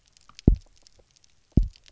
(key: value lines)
label: biophony, double pulse
recorder: SoundTrap 300